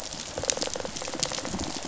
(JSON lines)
{"label": "biophony, rattle response", "recorder": "SoundTrap 500"}